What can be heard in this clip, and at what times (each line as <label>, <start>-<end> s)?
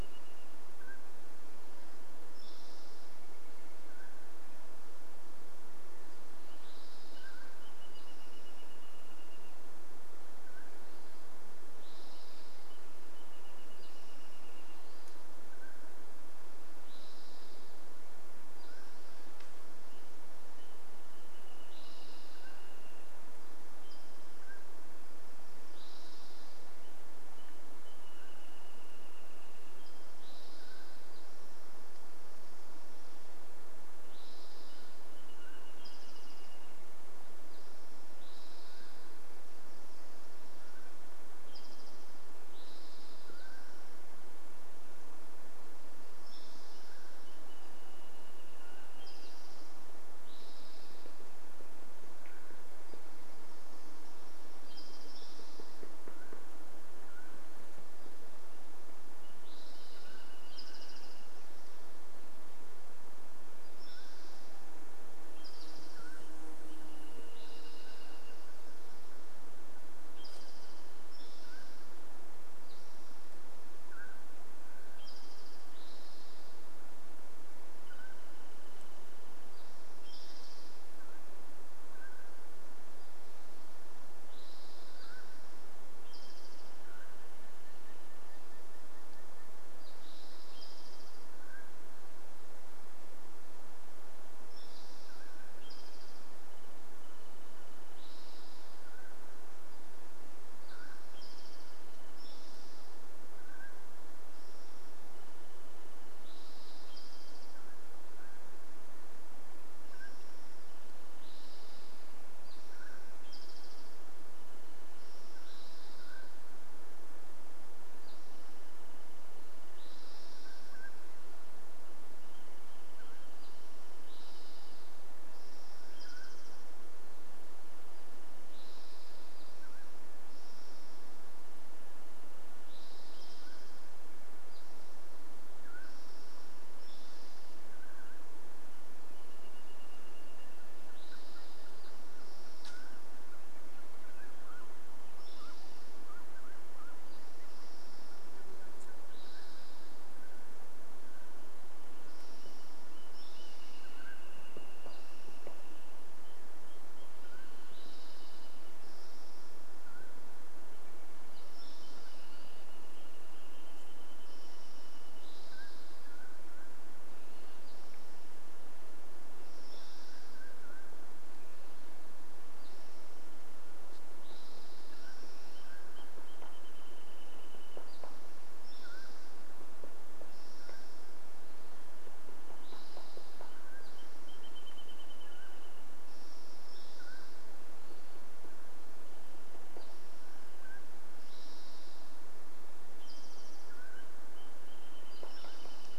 Wrentit song, 0-2 s
Mountain Quail call, 0-8 s
Spotted Towhee song, 2-4 s
unidentified sound, 2-4 s
Wrentit song, 6-10 s
Spotted Towhee song, 6-44 s
Mountain Quail call, 10-12 s
Wrentit song, 12-16 s
Mountain Quail call, 14-16 s
Mountain Quail call, 18-20 s
Wrentit song, 20-24 s
Mountain Quail call, 22-26 s
Wilson's Warbler song, 24-26 s
Wrentit song, 26-30 s
Mountain Quail call, 28-32 s
Mountain Quail call, 34-36 s
Wrentit song, 34-38 s
Mountain Quail call, 38-44 s
Mountain Quail call, 46-50 s
Wrentit song, 46-50 s
insect buzz, 46-50 s
Spotted Towhee song, 48-52 s
Black-throated Gray Warbler song, 52-54 s
Mountain Quail call, 52-54 s
woodpecker drumming, 52-54 s
Spotted Towhee song, 54-56 s
unidentified sound, 54-56 s
Mountain Quail call, 56-58 s
woodpecker drumming, 56-58 s
Wrentit song, 58-62 s
Spotted Towhee song, 58-92 s
Mountain Quail call, 60-68 s
insect buzz, 64-70 s
Wrentit song, 66-72 s
Mountain Quail call, 70-72 s
Mountain Quail call, 74-88 s
Wrentit song, 76-80 s
Wrentit song, 86-90 s
unidentified sound, 86-90 s
Mountain Quail call, 90-92 s
Mountain Quail call, 94-96 s
Spotted Towhee song, 94-108 s
Wrentit song, 96-98 s
Mountain Quail call, 98-104 s
Wrentit song, 100-102 s
Wrentit song, 104-106 s
Mountain Quail call, 106-118 s
unidentified sound, 110-112 s
Spotted Towhee song, 110-122 s
unidentified sound, 114-116 s
Wrentit song, 118-120 s
Mountain Quail call, 120-130 s
Wrentit song, 122-124 s
unidentified sound, 124-126 s
Spotted Towhee song, 124-138 s
Wrentit song, 126-128 s
Mountain Quail call, 132-140 s
Wrentit song, 138-142 s
unidentified sound, 140-142 s
Spotted Towhee song, 140-150 s
Mountain Quail call, 142-168 s
insect buzz, 148-150 s
Wrentit song, 150-166 s
Spotted Towhee song, 152-176 s
Spotted Towhee call, 166-168 s
Mountain Quail call, 170-176 s
woodpecker drumming, 174-180 s
Wrentit song, 176-178 s
Spotted Towhee song, 178-184 s
Mountain Quail call, 178-188 s
Wrentit song, 184-186 s
Spotted Towhee song, 186-196 s
woodpecker drumming, 188-190 s
Wrentit song, 188-192 s
Mountain Quail call, 190-196 s
Wrentit song, 194-196 s
woodpecker drumming, 194-196 s